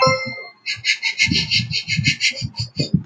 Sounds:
Sniff